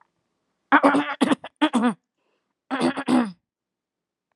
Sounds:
Throat clearing